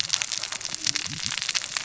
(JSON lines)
{"label": "biophony, cascading saw", "recorder": "SoundTrap 600 or HydroMoth"}